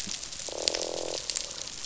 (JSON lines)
{"label": "biophony, croak", "recorder": "SoundTrap 500"}